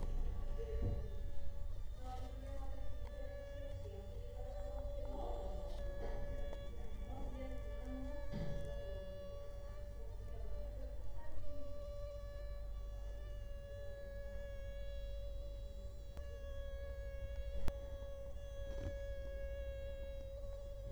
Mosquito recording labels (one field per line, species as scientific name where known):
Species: Culex quinquefasciatus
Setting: cup